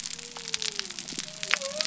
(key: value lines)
label: biophony
recorder: SoundTrap 300